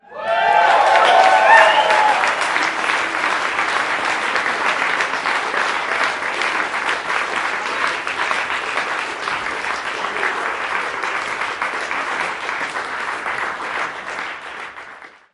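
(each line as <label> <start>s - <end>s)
People clapping sharply and repeatedly, with an echo. 0.0s - 15.3s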